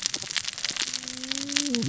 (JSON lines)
{"label": "biophony, cascading saw", "recorder": "SoundTrap 600 or HydroMoth"}